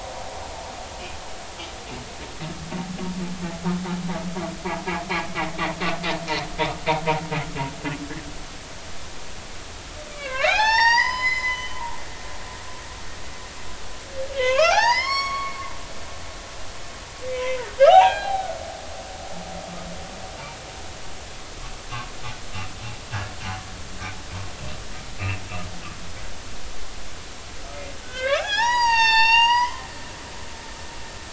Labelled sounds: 7.6	7.8	humpback whale, 2.7 to 2.9 kHz
10.1	11.8	humpback whale, 0.80 to 7.5 kHz
14.4	15.6	humpback whale, 0.80 to 5.6 kHz
17.3	18.5	humpback whale, 0.80 to 4.1 kHz
28.0	29.9	humpback whale, 0.80 to 7.4 kHz

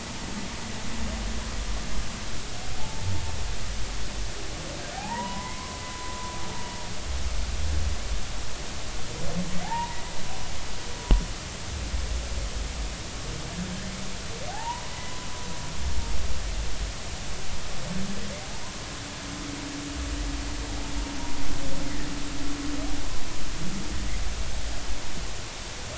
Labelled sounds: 2.8	3.1	humpback whale, 0.80 to 0.93 kHz
4.9	6.3	humpback whale, 0.80 to 2.2 kHz
9.6	10.0	humpback whale, 0.80 to 1.0 kHz
14.5	15.3	humpback whale, 0.80 to 1.1 kHz
21.8	22.1	humpback whale, 1.7 to 2.2 kHz

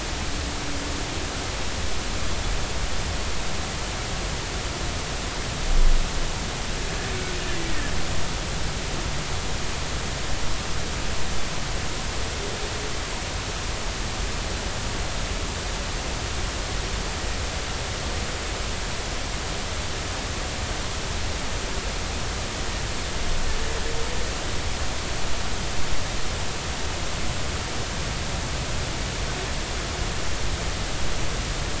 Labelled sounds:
7.5	7.9	humpback whale, 1.6 to 2.0 kHz

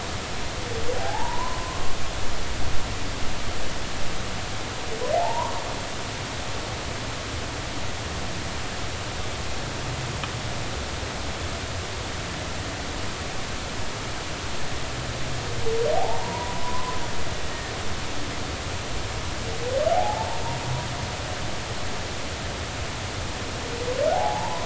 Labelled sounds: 1.0	2.0	humpback whale, 0.80 to 1.1 kHz
5.1	5.6	humpback whale, 0.80 to 1.2 kHz
15.9	17.0	humpback whale, 0.80 to 1.1 kHz
17.5	17.7	humpback whale, 1.7 to 1.9 kHz
19.9	20.4	humpback whale, 0.80 to 0.96 kHz
24.1	24.6	humpback whale, 0.80 to 1.1 kHz

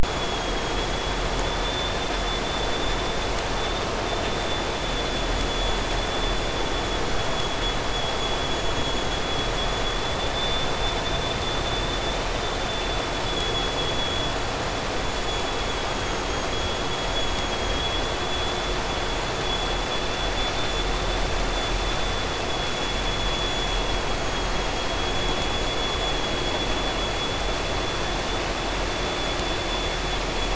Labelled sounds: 0.8	30.5	vessel noise, 2.7 to 7.1 kHz

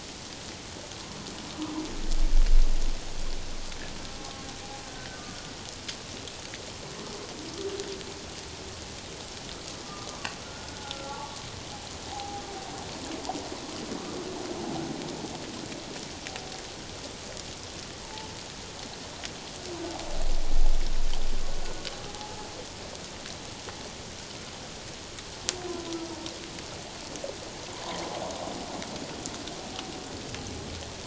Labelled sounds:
4.1	4.5	humpback whale, 0.78 to 1.1 kHz
10.1	11.4	humpback whale, 0.78 to 1.5 kHz
12.1	12.4	humpback whale, 0.78 to 0.88 kHz
18.0	18.3	humpback whale, 0.81 to 1.1 kHz
22.1	22.5	humpback whale, 0.78 to 0.91 kHz
27.8	28.0	humpback whale, 0.91 to 1.2 kHz

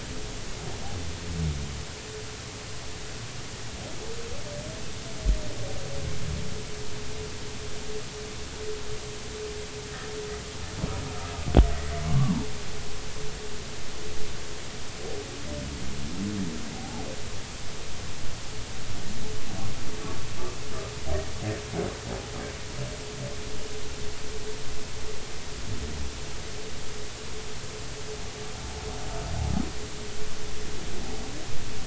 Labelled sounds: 11.7	12.5	humpback whale, 0.80 to 2.0 kHz
16.7	17.0	humpback whale, 0.80 to 0.93 kHz

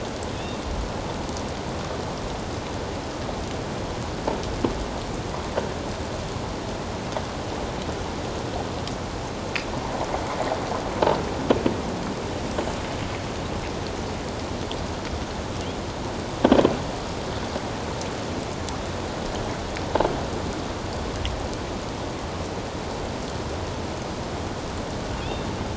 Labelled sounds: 0.4	0.6	killer whale, 2.5 to 2.8 kHz
25.2	25.5	killer whale, 2.4 to 3.7 kHz

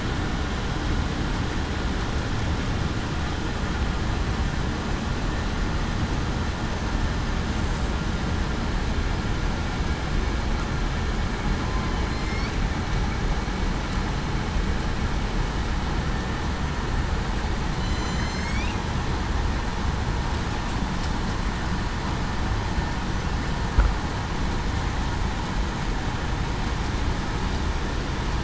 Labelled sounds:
17.7	18.5	killer whale, southern resident, 3.0 to 4.4 kHz

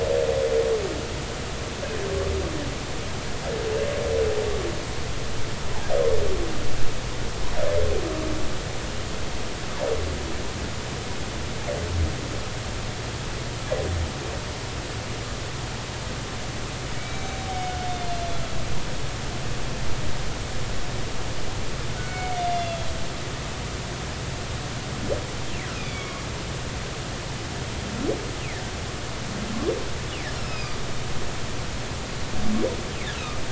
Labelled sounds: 16.9	17.3	humpback whale, 2.2 to 3.9 kHz
22.0	22.9	humpback whale, 1.4 to 3.6 kHz
25.7	26.2	humpback whale, 2.1 to 3.5 kHz
30.3	30.7	humpback whale, 2.3 to 5.6 kHz

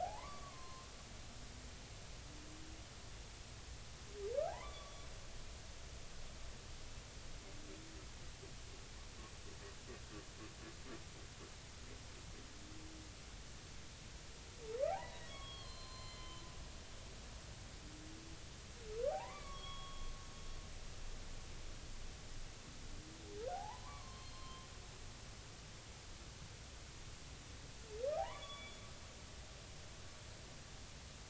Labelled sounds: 0.0	0.9	humpback whale, 0.80 to 4.3 kHz
4.5	4.9	humpback whale, 0.80 to 3.6 kHz
14.9	16.5	humpback whale, 0.80 to 7.3 kHz
19.1	20.6	humpback whale, 0.80 to 3.4 kHz
23.5	24.7	humpback whale, 0.80 to 4.3 kHz
28.2	28.7	humpback whale, 0.80 to 2.4 kHz
29.3	29.8	humpback whale, 3.3 to 3.6 kHz

